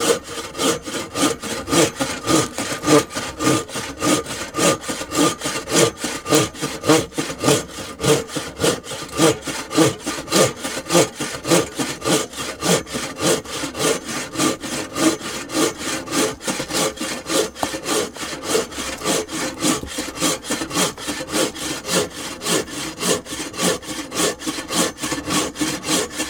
Is wood being cut?
yes